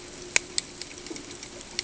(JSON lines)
{"label": "ambient", "recorder": "HydroMoth"}